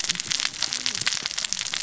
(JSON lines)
{"label": "biophony, cascading saw", "recorder": "SoundTrap 600 or HydroMoth"}